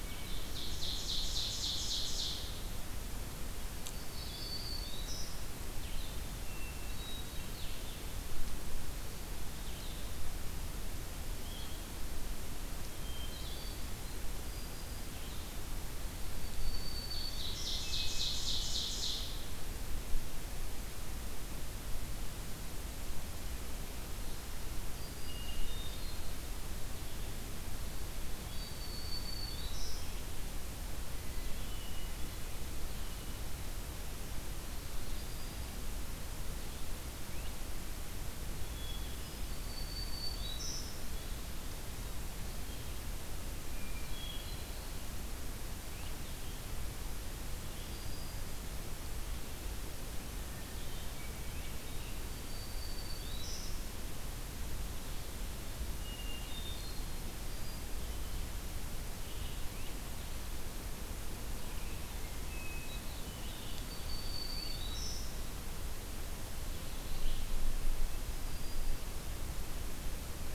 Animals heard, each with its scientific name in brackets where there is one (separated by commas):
Ovenbird (Seiurus aurocapilla), Blue-headed Vireo (Vireo solitarius), Red-eyed Vireo (Vireo olivaceus), Hermit Thrush (Catharus guttatus), Black-throated Green Warbler (Setophaga virens)